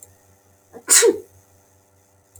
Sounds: Sneeze